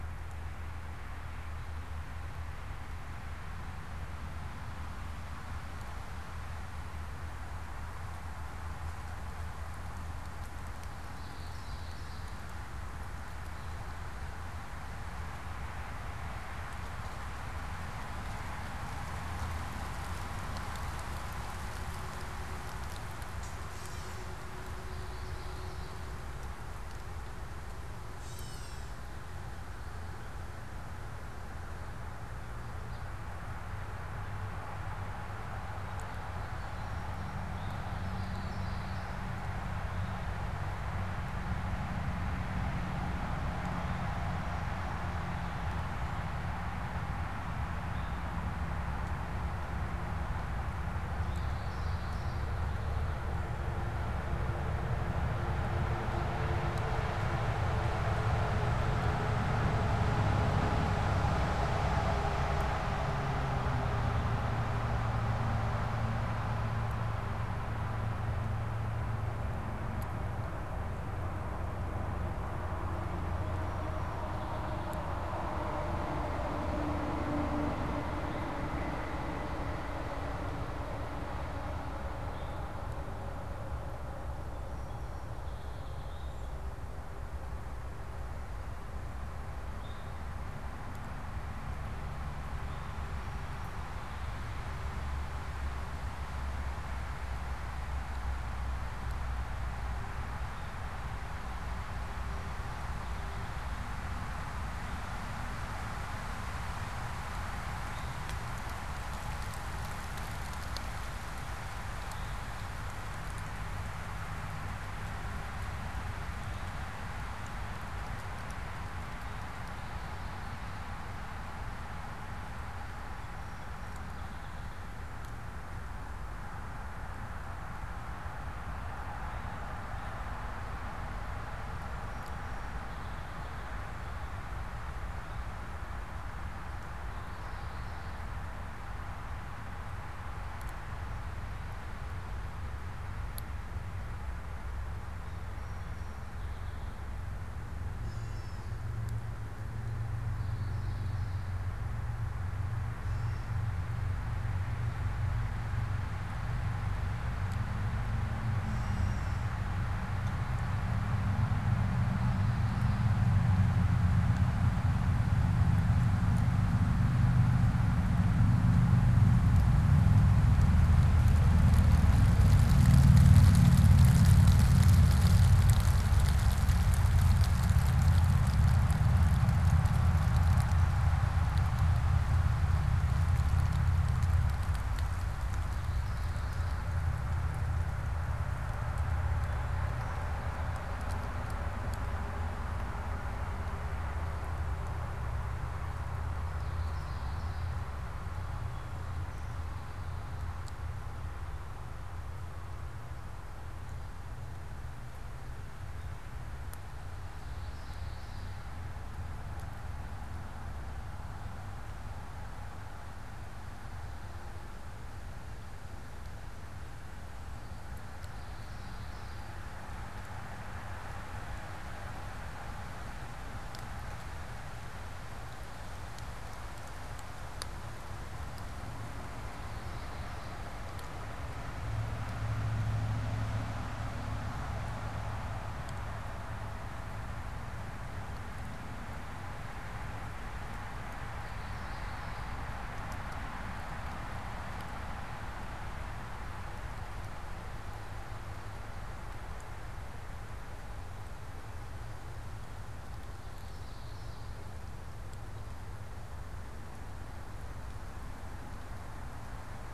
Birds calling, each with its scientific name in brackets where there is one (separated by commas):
unidentified bird, Gray Catbird (Dumetella carolinensis), Eastern Towhee (Pipilo erythrophthalmus), Common Yellowthroat (Geothlypis trichas)